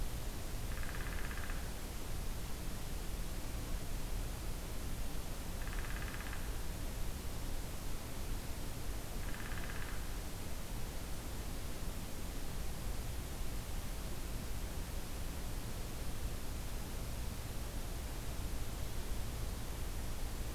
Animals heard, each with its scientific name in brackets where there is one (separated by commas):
Downy Woodpecker (Dryobates pubescens)